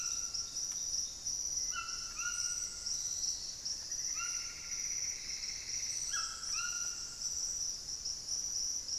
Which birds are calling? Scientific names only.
Ramphastos tucanus, Formicarius analis, Myrmelastes hyperythrus